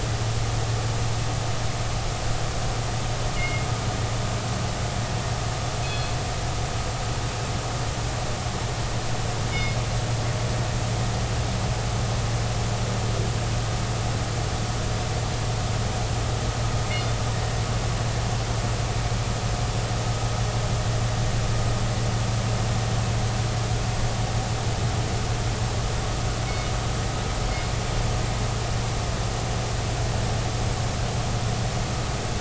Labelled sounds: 3.3	3.7	killer whale, northern resident, G clan, call N24ii, 2.0 to 3.0 kHz
5.8	6.1	killer whale, northern resident, G clan, call N24ii, 3.3 to 4.3 kHz
9.5	9.8	killer whale, northern resident, G clan, call N24ii, 2.1 to 2.3 kHz

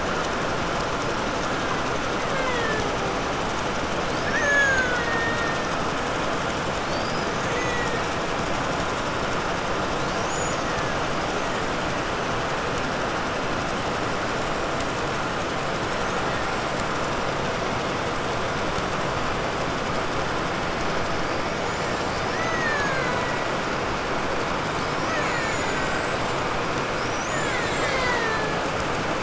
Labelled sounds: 1.3	3.2	killer whale, Bigg's (transient), 0.17 to 4.8 kHz
3.7	6.0	killer whale, Bigg's (transient), 0.23 to 7.0 kHz
6.7	8.4	killer whale, Bigg's (transient), 1.4 to 8.0 kHz
9.9	11.8	killer whale, Bigg's (transient), 0.98 to 7.6 kHz
21.4	24.1	killer whale, Bigg's (transient), 0.47 to 7.8 kHz
24.7	29.2	killer whale, Bigg's (transient), 0.15 to 8.0 kHz

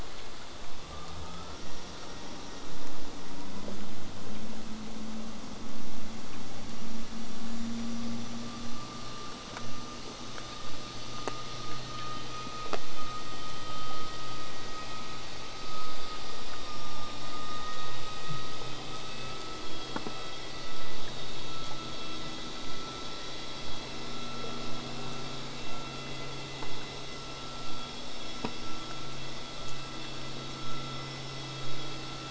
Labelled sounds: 22.6	27.6	vessel noise, 0 to 8.0 kHz

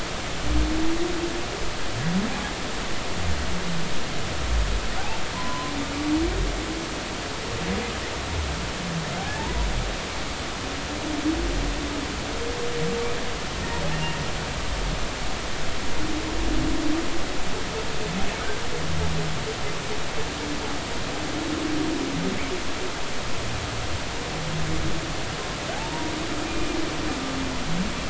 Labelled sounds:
5.3	5.7	humpback whale, 0.93 to 1.1 kHz
13.9	14.2	humpback whale, 2.6 to 2.9 kHz
25.7	26.7	humpback whale, 0.80 to 2.5 kHz

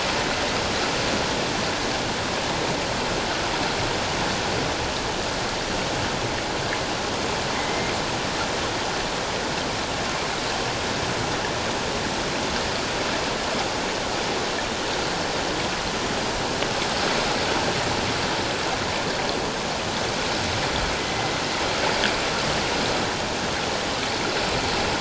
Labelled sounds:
7.5	7.9	killer whale, northern resident, 2.0 to 2.2 kHz
21.0	21.3	killer whale, northern resident, 2.0 to 2.1 kHz

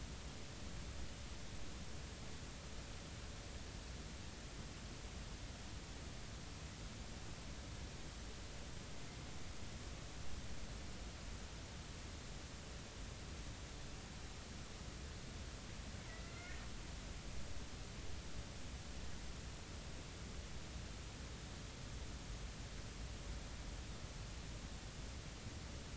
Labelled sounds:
16.0	16.6	killer whale, northern resident, A clan, AB subclan, 1.3 to 2.3 kHz

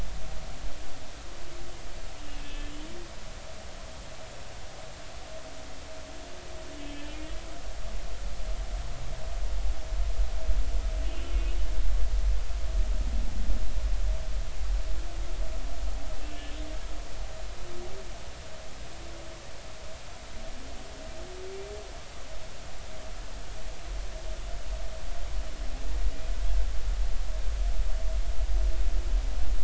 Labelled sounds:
2.4	2.7	humpback whale, 1.7 to 3.3 kHz
6.8	7.2	humpback whale, 3.1 to 3.3 kHz
11.3	11.6	humpback whale, 2.4 to 2.6 kHz

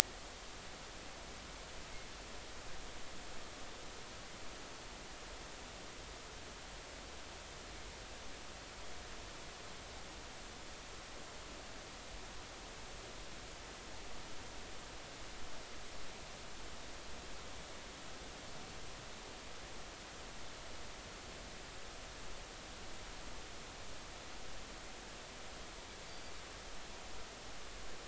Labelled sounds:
26.1	26.3	Pacific white-sided dolphin, 4.6 to 4.7 kHz

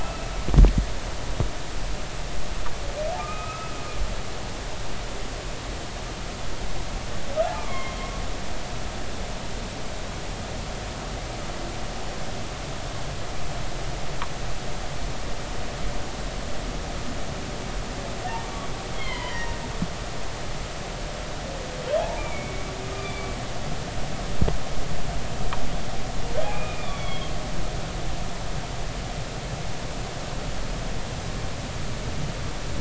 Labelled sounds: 0.0	0.3	humpback whale, 2.6 to 2.7 kHz
3.2	3.7	humpback whale, 1.2 to 2.6 kHz
7.5	8.1	humpback whale, 1.0 to 3.4 kHz
19.0	19.5	humpback whale, 0.93 to 3.4 kHz
22.0	23.4	humpback whale, 0.80 to 2.5 kHz
26.4	27.3	humpback whale, 2.1 to 3.5 kHz

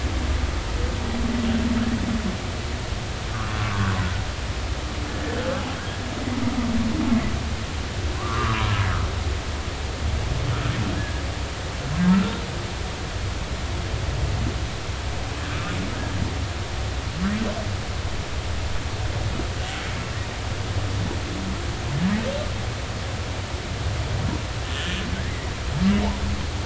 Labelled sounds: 3.6	3.9	humpback whale, 0.99 to 1.2 kHz
5.1	5.4	humpback whale, 1.7 to 1.8 kHz
8.1	8.6	humpback whale, 0.96 to 1.4 kHz
11.0	11.2	humpback whale, 1.6 to 1.8 kHz
15.5	15.8	humpback whale, 1.2 to 1.4 kHz
24.7	25.5	humpback whale, 1.5 to 3.3 kHz

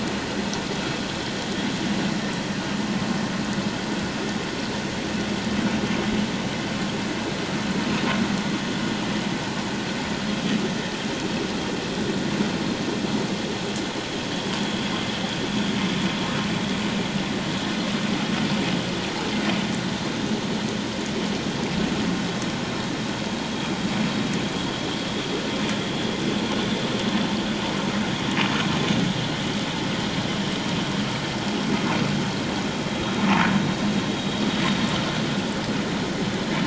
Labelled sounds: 33.0	33.2	vessel noise, 3.7 to 3.8 kHz

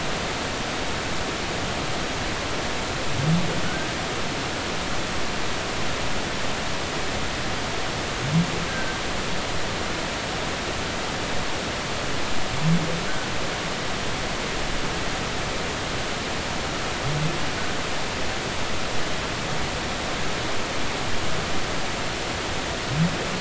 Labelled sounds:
0.4	0.7	humpback whale, 1.2 to 1.6 kHz
8.7	9.0	humpback whale, 1.5 to 1.6 kHz

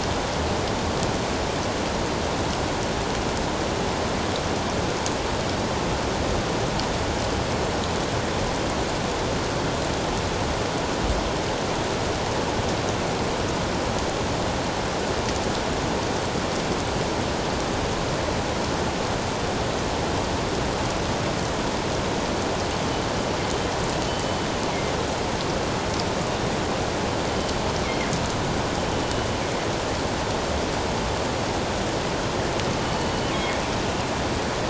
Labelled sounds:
24.1	24.4	killer whale, northern resident, G clan, 3.0 to 3.1 kHz
27.8	28.1	killer whale, northern resident, G clan, 1.9 to 2.3 kHz
32.8	33.6	killer whale, northern resident, G clan, 1.8 to 3.0 kHz

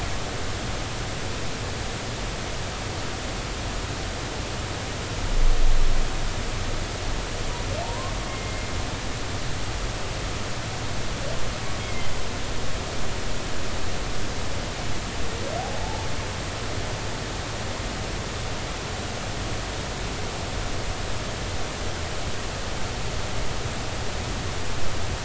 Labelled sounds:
7.8	8.7	humpback whale, 0.83 to 2.2 kHz
11.8	12.1	humpback whale, 2.0 to 2.3 kHz
15.6	16.1	humpback whale, 0.80 to 0.93 kHz

